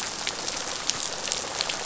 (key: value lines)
label: biophony, rattle response
recorder: SoundTrap 500